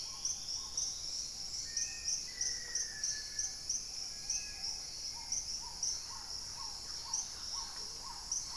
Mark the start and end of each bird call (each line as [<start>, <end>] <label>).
[0.00, 2.24] Dusky-throated Antshrike (Thamnomanes ardesiacus)
[0.00, 4.84] Spot-winged Antshrike (Pygiptila stellaris)
[0.00, 8.56] Black-tailed Trogon (Trogon melanurus)
[0.00, 8.56] Hauxwell's Thrush (Turdus hauxwelli)
[1.54, 3.74] Black-faced Antthrush (Formicarius analis)
[2.14, 3.24] Gray-fronted Dove (Leptotila rufaxilla)
[4.04, 5.14] Little Tinamou (Crypturellus soui)
[5.64, 8.56] Thrush-like Wren (Campylorhynchus turdinus)
[7.04, 7.84] Dusky-capped Greenlet (Pachysylvia hypoxantha)
[7.64, 8.14] Amazonian Motmot (Momotus momota)